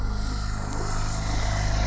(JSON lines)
{"label": "anthrophony, boat engine", "recorder": "SoundTrap 300"}